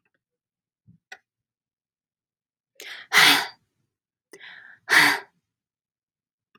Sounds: Sigh